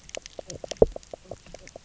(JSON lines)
{"label": "biophony, knock croak", "recorder": "SoundTrap 300"}